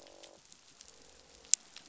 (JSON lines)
{"label": "biophony, croak", "recorder": "SoundTrap 500"}